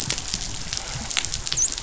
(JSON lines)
{"label": "biophony, dolphin", "recorder": "SoundTrap 500"}